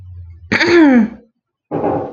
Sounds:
Throat clearing